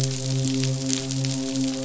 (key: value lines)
label: biophony, midshipman
recorder: SoundTrap 500